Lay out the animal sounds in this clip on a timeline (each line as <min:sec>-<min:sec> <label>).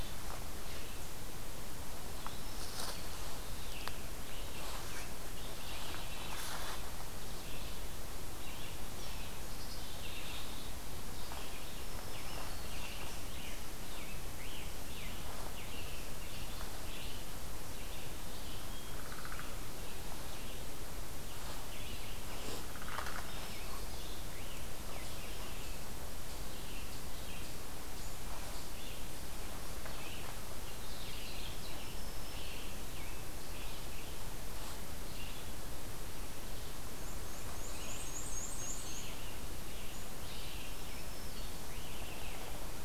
0:00.0-0:34.0 Red-eyed Vireo (Vireo olivaceus)
0:02.1-0:03.2 Black-throated Green Warbler (Setophaga virens)
0:05.4-0:06.9 Black-capped Chickadee (Poecile atricapillus)
0:09.5-0:10.8 Black-capped Chickadee (Poecile atricapillus)
0:11.7-0:13.0 Black-throated Green Warbler (Setophaga virens)
0:13.8-0:17.4 Scarlet Tanager (Piranga olivacea)
0:21.2-0:25.2 Scarlet Tanager (Piranga olivacea)
0:22.9-0:24.3 Black-throated Green Warbler (Setophaga virens)
0:29.2-0:34.2 Scarlet Tanager (Piranga olivacea)
0:31.6-0:32.8 Black-throated Green Warbler (Setophaga virens)
0:35.0-0:35.5 Red-eyed Vireo (Vireo olivaceus)
0:36.9-0:39.3 Black-and-white Warbler (Mniotilta varia)
0:37.6-0:41.0 Red-eyed Vireo (Vireo olivaceus)
0:38.5-0:42.4 Scarlet Tanager (Piranga olivacea)
0:40.6-0:41.6 Black-throated Green Warbler (Setophaga virens)